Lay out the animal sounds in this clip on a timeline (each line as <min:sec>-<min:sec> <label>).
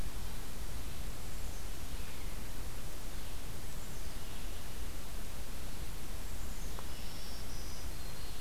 0:01.2-0:02.5 Black-capped Chickadee (Poecile atricapillus)
0:01.9-0:08.4 Red-eyed Vireo (Vireo olivaceus)
0:03.6-0:05.0 Black-capped Chickadee (Poecile atricapillus)
0:06.2-0:07.5 Black-capped Chickadee (Poecile atricapillus)
0:06.9-0:08.4 Black-throated Green Warbler (Setophaga virens)